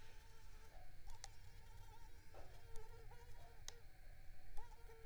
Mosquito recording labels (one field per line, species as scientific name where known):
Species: Culex tigripes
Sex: female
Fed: unfed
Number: one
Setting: cup